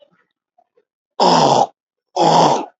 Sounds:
Throat clearing